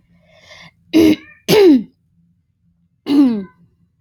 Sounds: Throat clearing